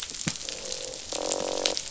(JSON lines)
{"label": "biophony, croak", "recorder": "SoundTrap 500"}